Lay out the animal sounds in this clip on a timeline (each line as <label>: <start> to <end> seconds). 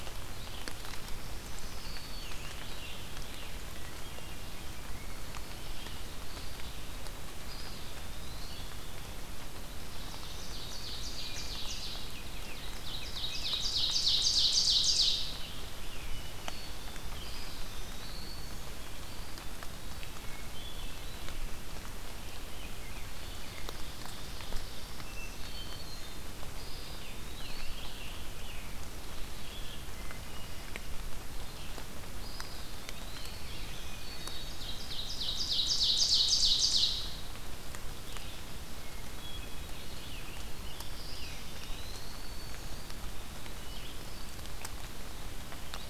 Red-eyed Vireo (Vireo olivaceus): 0.0 to 31.8 seconds
Black-throated Green Warbler (Setophaga virens): 0.9 to 2.5 seconds
Scarlet Tanager (Piranga olivacea): 1.5 to 3.5 seconds
Hermit Thrush (Catharus guttatus): 3.8 to 4.7 seconds
Eastern Wood-Pewee (Contopus virens): 6.0 to 8.7 seconds
Ovenbird (Seiurus aurocapilla): 9.8 to 12.1 seconds
Ovenbird (Seiurus aurocapilla): 12.4 to 15.5 seconds
Hermit Thrush (Catharus guttatus): 16.0 to 17.1 seconds
Eastern Wood-Pewee (Contopus virens): 17.0 to 18.5 seconds
Eastern Wood-Pewee (Contopus virens): 18.8 to 20.2 seconds
Hermit Thrush (Catharus guttatus): 19.9 to 21.5 seconds
Ovenbird (Seiurus aurocapilla): 23.2 to 25.3 seconds
Hermit Thrush (Catharus guttatus): 25.0 to 26.4 seconds
Eastern Wood-Pewee (Contopus virens): 26.3 to 27.9 seconds
Scarlet Tanager (Piranga olivacea): 26.8 to 29.0 seconds
Hermit Thrush (Catharus guttatus): 29.8 to 31.1 seconds
Eastern Wood-Pewee (Contopus virens): 32.2 to 33.7 seconds
Black-throated Green Warbler (Setophaga virens): 33.0 to 34.7 seconds
Hermit Thrush (Catharus guttatus): 33.6 to 34.6 seconds
Ovenbird (Seiurus aurocapilla): 34.0 to 37.4 seconds
Red-eyed Vireo (Vireo olivaceus): 37.9 to 45.9 seconds
Hermit Thrush (Catharus guttatus): 38.7 to 40.1 seconds
Scarlet Tanager (Piranga olivacea): 39.6 to 41.8 seconds
Eastern Wood-Pewee (Contopus virens): 40.7 to 42.9 seconds
Hermit Thrush (Catharus guttatus): 43.2 to 44.7 seconds